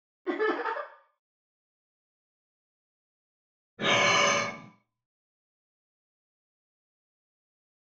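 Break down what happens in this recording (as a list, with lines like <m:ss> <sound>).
0:00 laughter is audible
0:04 you can hear breathing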